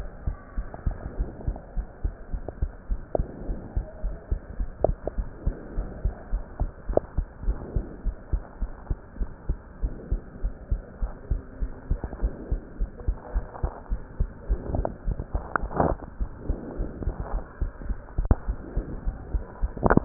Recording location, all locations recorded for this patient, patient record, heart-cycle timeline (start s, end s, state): pulmonary valve (PV)
aortic valve (AV)+pulmonary valve (PV)+tricuspid valve (TV)+mitral valve (MV)
#Age: Child
#Sex: Female
#Height: 126.0 cm
#Weight: 27.1 kg
#Pregnancy status: False
#Murmur: Absent
#Murmur locations: nan
#Most audible location: nan
#Systolic murmur timing: nan
#Systolic murmur shape: nan
#Systolic murmur grading: nan
#Systolic murmur pitch: nan
#Systolic murmur quality: nan
#Diastolic murmur timing: nan
#Diastolic murmur shape: nan
#Diastolic murmur grading: nan
#Diastolic murmur pitch: nan
#Diastolic murmur quality: nan
#Outcome: Normal
#Campaign: 2015 screening campaign
0.00	0.10	S1
0.10	0.24	systole
0.24	0.38	S2
0.38	0.56	diastole
0.56	0.66	S1
0.66	0.84	systole
0.84	0.98	S2
0.98	1.16	diastole
1.16	1.28	S1
1.28	1.46	systole
1.46	1.58	S2
1.58	1.76	diastole
1.76	1.86	S1
1.86	2.02	systole
2.02	2.12	S2
2.12	2.32	diastole
2.32	2.44	S1
2.44	2.58	systole
2.58	2.70	S2
2.70	2.88	diastole
2.88	3.02	S1
3.02	3.16	systole
3.16	3.26	S2
3.26	3.46	diastole
3.46	3.58	S1
3.58	3.74	systole
3.74	3.84	S2
3.84	4.04	diastole
4.04	4.16	S1
4.16	4.28	systole
4.28	4.40	S2
4.40	4.58	diastole
4.58	4.70	S1
4.70	4.82	systole
4.82	4.96	S2
4.96	5.16	diastole
5.16	5.30	S1
5.30	5.44	systole
5.44	5.58	S2
5.58	5.76	diastole
5.76	5.88	S1
5.88	6.02	systole
6.02	6.14	S2
6.14	6.32	diastole
6.32	6.44	S1
6.44	6.60	systole
6.60	6.72	S2
6.72	6.88	diastole
6.88	6.98	S1
6.98	7.14	systole
7.14	7.26	S2
7.26	7.46	diastole
7.46	7.60	S1
7.60	7.74	systole
7.74	7.84	S2
7.84	8.04	diastole
8.04	8.16	S1
8.16	8.32	systole
8.32	8.42	S2
8.42	8.60	diastole
8.60	8.70	S1
8.70	8.88	systole
8.88	8.98	S2
8.98	9.20	diastole
9.20	9.30	S1
9.30	9.48	systole
9.48	9.58	S2
9.58	9.82	diastole
9.82	9.92	S1
9.92	10.10	systole
10.10	10.20	S2
10.20	10.40	diastole
10.40	10.54	S1
10.54	10.70	systole
10.70	10.84	S2
10.84	11.00	diastole
11.00	11.12	S1
11.12	11.30	systole
11.30	11.44	S2
11.44	11.60	diastole
11.60	11.72	S1
11.72	11.86	systole
11.86	11.98	S2
11.98	12.18	diastole
12.18	12.32	S1
12.32	12.50	systole
12.50	12.60	S2
12.60	12.80	diastole
12.80	12.90	S1
12.90	13.04	systole
13.04	13.16	S2
13.16	13.34	diastole
13.34	13.46	S1
13.46	13.60	systole
13.60	13.70	S2
13.70	13.90	diastole
13.90	14.02	S1
14.02	14.16	systole
14.16	14.28	S2
14.28	14.46	diastole